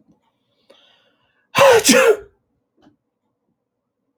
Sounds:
Sneeze